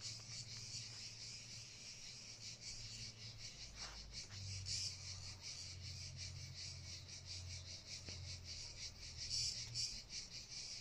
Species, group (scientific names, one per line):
Cicada orni
Cicadidae